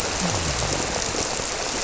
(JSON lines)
{"label": "biophony", "recorder": "SoundTrap 300"}